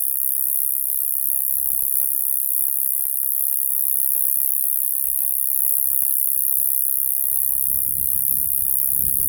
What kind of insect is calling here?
orthopteran